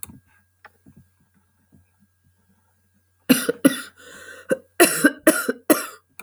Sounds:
Cough